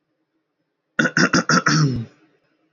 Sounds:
Throat clearing